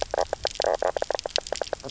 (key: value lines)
label: biophony, knock croak
recorder: SoundTrap 300